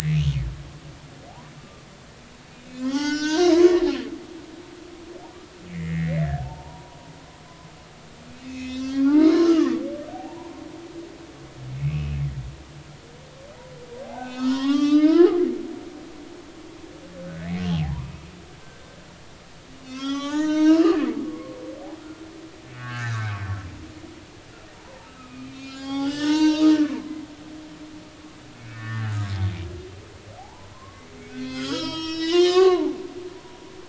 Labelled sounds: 0.1	0.4	humpback whale, 2.8 to 3.3 kHz
1.6	1.8	humpback whale, 1.1 to 1.2 kHz
2.7	3.8	humpback whale, 0.86 to 7.2 kHz
5.7	7.0	humpback whale, 0.80 to 2.5 kHz
8.3	10.6	humpback whale, 0.80 to 6.0 kHz
11.8	12.2	humpback whale, 2.4 to 2.8 kHz
14.0	15.4	humpback whale, 0.80 to 6.6 kHz
17.4	18.1	humpback whale, 0.80 to 2.3 kHz
18.6	18.9	humpback whale, 1.5 to 1.7 kHz
19.8	20.9	humpback whale, 0.80 to 7.0 kHz
21.2	21.6	humpback whale, 1.0 to 1.2 kHz
22.7	23.3	humpback whale, 0.99 to 2.0 kHz
24.7	27.2	humpback whale, 0.80 to 6.6 kHz
28.6	29.1	humpback whale, 1.1 to 2.7 kHz
30.4	33.0	humpback whale, 0.80 to 8.0 kHz

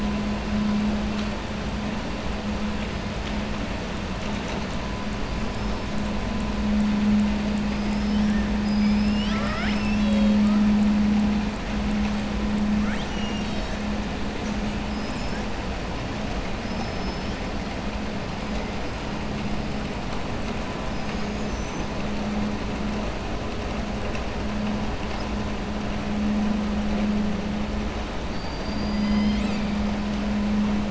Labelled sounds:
7.7	8.3	killer whale, southern resident, 4.9 to 5.9 kHz
12.8	13.8	killer whale, southern resident, 1.4 to 7.9 kHz
16.6	17.4	killer whale, southern resident, 5.1 to 6.0 kHz
20.9	21.9	killer whale, southern resident, 4.4 to 7.6 kHz
28.3	29.7	killer whale, southern resident, 2.0 to 7.7 kHz

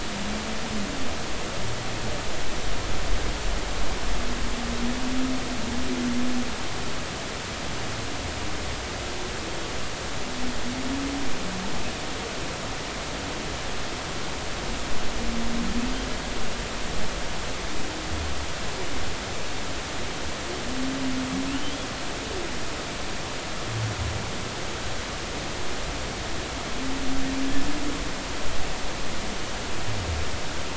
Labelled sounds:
21.5	21.7	humpback whale, 2.5 to 3.1 kHz

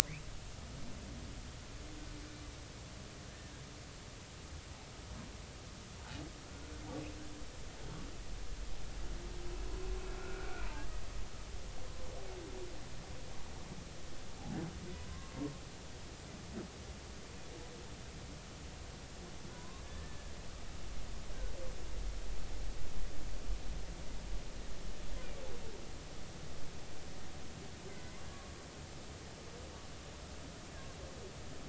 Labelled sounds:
10.2	10.5	humpback whale, 1.3 to 1.5 kHz
14.9	15.3	humpback whale, 0.96 to 1.2 kHz
19.5	20.3	humpback whale, 0.93 to 1.8 kHz
27.9	28.5	humpback whale, 1.1 to 2.2 kHz

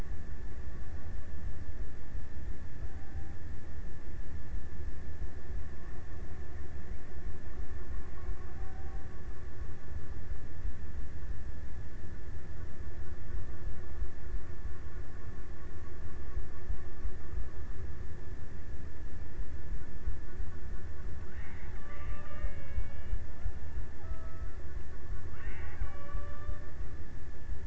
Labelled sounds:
21.1	23.1	killer whale, Bigg's (transient), 0.39 to 3.8 kHz
23.9	27.5	killer whale, Bigg's (transient), 0.34 to 3.6 kHz

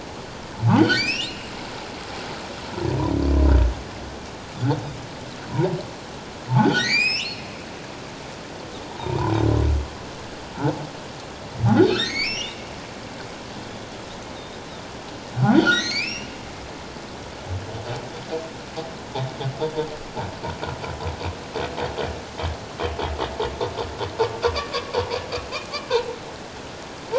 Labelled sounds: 0.7	1.5	humpback whale, 1.3 to 5.8 kHz
5.5	5.7	humpback whale, 0.78 to 1.1 kHz
6.6	7.4	humpback whale, 1.3 to 8.0 kHz
8.9	9.3	humpback whale, 0.78 to 1.1 kHz
11.8	12.6	humpback whale, 1.3 to 5.8 kHz
15.4	16.3	humpback whale, 1.3 to 6.9 kHz
25.9	26.2	humpback whale, 3.9 to 4.2 kHz

